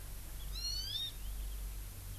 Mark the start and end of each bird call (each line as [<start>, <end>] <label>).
[0.50, 1.10] Hawaii Amakihi (Chlorodrepanis virens)